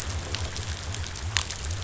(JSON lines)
{"label": "biophony", "recorder": "SoundTrap 500"}